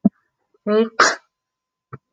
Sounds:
Sneeze